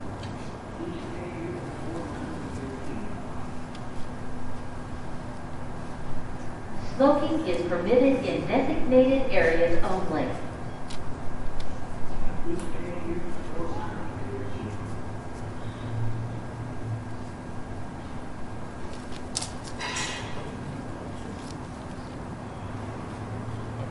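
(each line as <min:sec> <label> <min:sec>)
0:00.0 An engine emitting a quiet, steady humming sound. 0:23.9
0:00.7 A person is speaking inside a vehicle, their voice heavily muffled and distant. 0:04.0
0:06.8 A loud, echoing voice coming from a speaker inside a vehicle. 0:10.5
0:12.4 A person is speaking inside a vehicle, their voice heavily muffled and distant. 0:15.3
0:19.7 A loud, echoing metallic creak that fades quickly. 0:20.6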